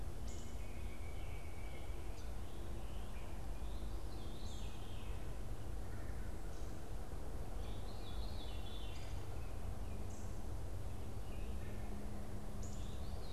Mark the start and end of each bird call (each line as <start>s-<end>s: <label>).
0.0s-13.3s: Wood Thrush (Hylocichla mustelina)
0.2s-2.1s: Pileated Woodpecker (Dryocopus pileatus)
2.1s-3.4s: Scarlet Tanager (Piranga olivacea)
3.5s-13.3s: Veery (Catharus fuscescens)